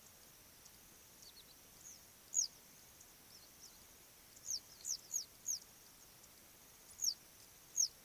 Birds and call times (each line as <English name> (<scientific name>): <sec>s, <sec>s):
Western Yellow Wagtail (Motacilla flava): 4.9s